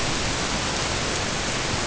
{"label": "ambient", "recorder": "HydroMoth"}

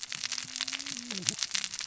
{"label": "biophony, cascading saw", "recorder": "SoundTrap 600 or HydroMoth"}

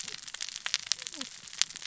{"label": "biophony, cascading saw", "recorder": "SoundTrap 600 or HydroMoth"}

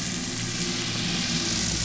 {"label": "anthrophony, boat engine", "recorder": "SoundTrap 500"}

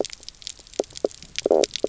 {"label": "biophony, knock croak", "recorder": "SoundTrap 300"}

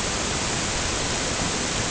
{"label": "ambient", "recorder": "HydroMoth"}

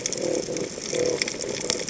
{"label": "biophony", "recorder": "HydroMoth"}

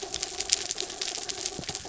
{"label": "anthrophony, mechanical", "recorder": "SoundTrap 300"}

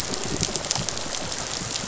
{"label": "biophony, rattle response", "recorder": "SoundTrap 500"}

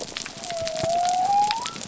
{"label": "biophony", "recorder": "SoundTrap 300"}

